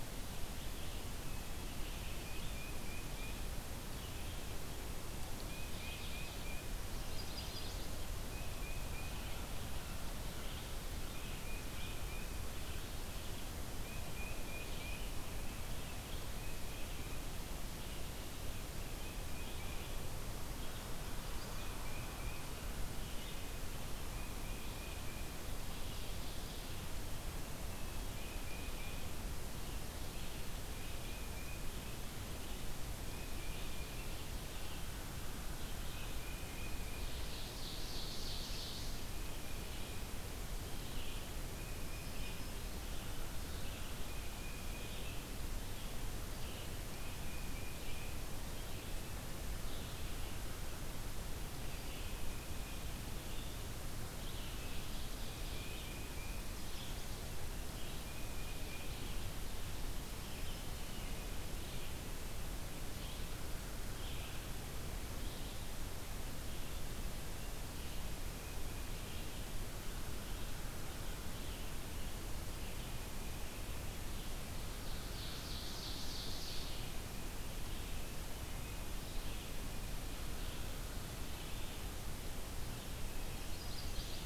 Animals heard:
American Goldfinch (Spinus tristis), American Crow (Corvus brachyrhynchos), Ovenbird (Seiurus aurocapilla), Black-throated Green Warbler (Setophaga virens), Tufted Titmouse (Baeolophus bicolor), Chestnut-sided Warbler (Setophaga pensylvanica), Red-eyed Vireo (Vireo olivaceus)

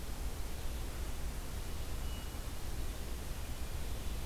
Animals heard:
Wood Thrush (Hylocichla mustelina)

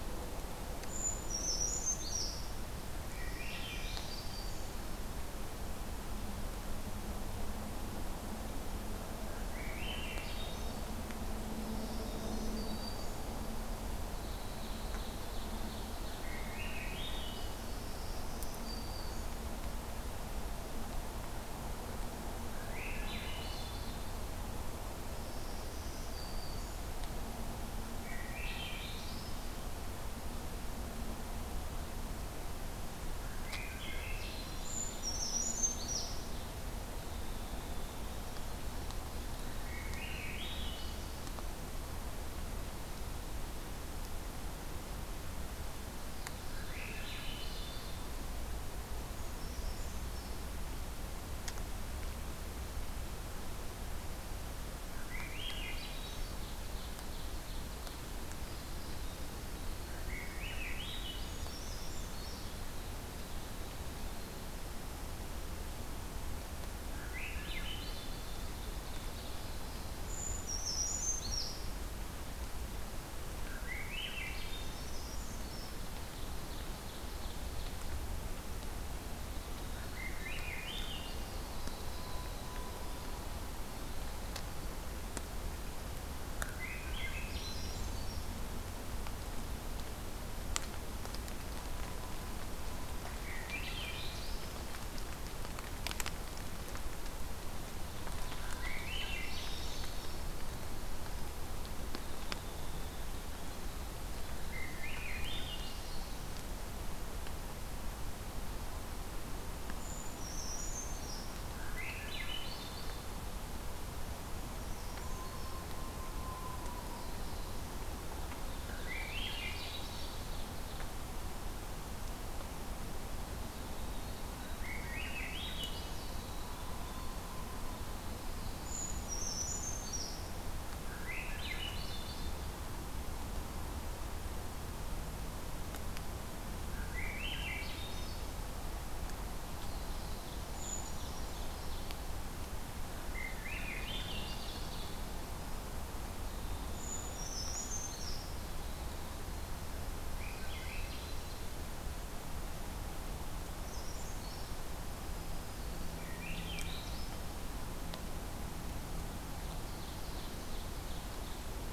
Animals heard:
Black-throated Green Warbler (Setophaga virens), Black-throated Blue Warbler (Setophaga caerulescens), Winter Wren (Troglodytes hiemalis), Ovenbird (Seiurus aurocapilla), Golden-crowned Kinglet (Regulus satrapa), Brown Creeper (Certhia americana), Swainson's Thrush (Catharus ustulatus)

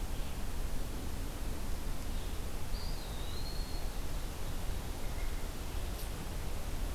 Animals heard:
Eastern Wood-Pewee (Contopus virens)

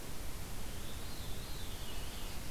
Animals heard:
Veery (Catharus fuscescens)

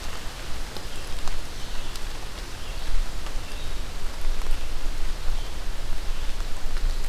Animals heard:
Red-eyed Vireo (Vireo olivaceus)

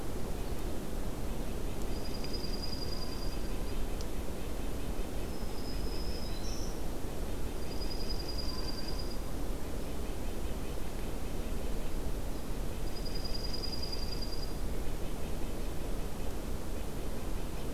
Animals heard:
Dark-eyed Junco (Junco hyemalis), Black-throated Green Warbler (Setophaga virens), Red-breasted Nuthatch (Sitta canadensis)

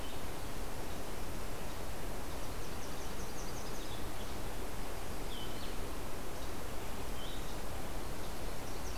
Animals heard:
Blue-headed Vireo (Vireo solitarius), Yellow-rumped Warbler (Setophaga coronata)

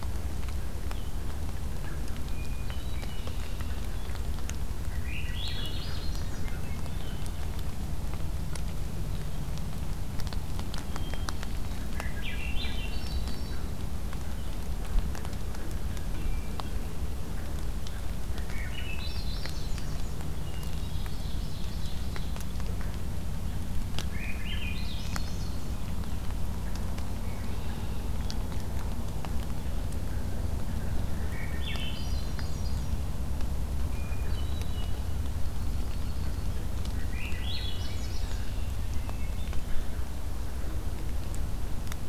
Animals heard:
Hermit Thrush (Catharus guttatus), Swainson's Thrush (Catharus ustulatus), Red-winged Blackbird (Agelaius phoeniceus), Ovenbird (Seiurus aurocapilla)

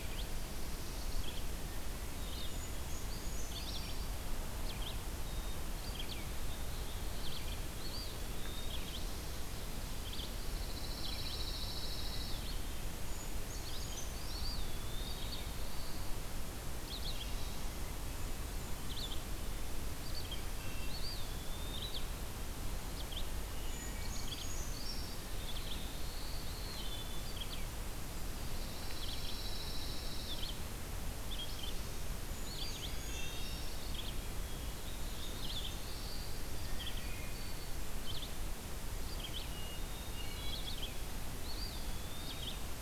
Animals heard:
Wood Thrush (Hylocichla mustelina), Pine Warbler (Setophaga pinus), Blackburnian Warbler (Setophaga fusca), Hermit Thrush (Catharus guttatus), Black-throated Blue Warbler (Setophaga caerulescens), Brown Creeper (Certhia americana), Eastern Wood-Pewee (Contopus virens), Red-eyed Vireo (Vireo olivaceus)

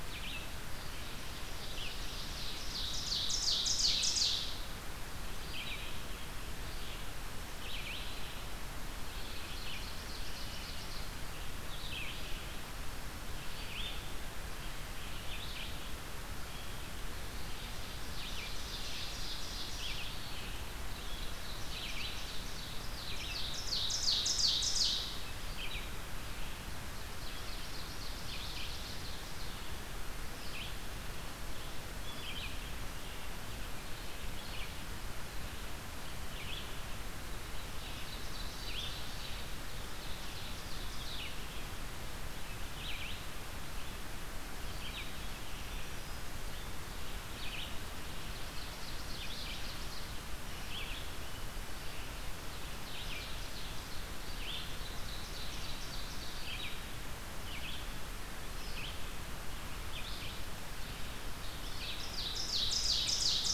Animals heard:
Red-eyed Vireo (Vireo olivaceus), Ovenbird (Seiurus aurocapilla)

